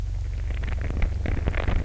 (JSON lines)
{"label": "anthrophony, boat engine", "recorder": "SoundTrap 300"}